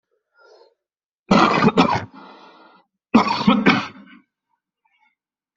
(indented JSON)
{
  "expert_labels": [
    {
      "quality": "ok",
      "cough_type": "wet",
      "dyspnea": false,
      "wheezing": false,
      "stridor": false,
      "choking": false,
      "congestion": false,
      "nothing": true,
      "diagnosis": "lower respiratory tract infection",
      "severity": "mild"
    }
  ],
  "age": 30,
  "gender": "male",
  "respiratory_condition": false,
  "fever_muscle_pain": true,
  "status": "healthy"
}